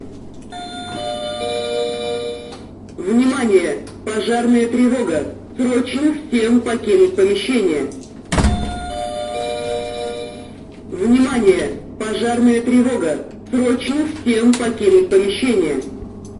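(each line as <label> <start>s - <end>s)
A loud fire alarm ringing. 0.8s - 3.0s
An urgent female voice repeatedly warning about fire, playing with a slight echo indoors. 2.9s - 8.5s
A loud fire alarm rings in an office. 8.5s - 10.9s
An urgent female voice repeatedly warning about fire, with a slight indoor echo. 11.0s - 16.3s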